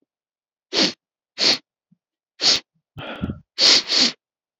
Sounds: Sniff